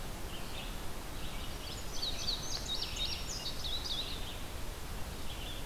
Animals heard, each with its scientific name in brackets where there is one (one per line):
Red-eyed Vireo (Vireo olivaceus)
Indigo Bunting (Passerina cyanea)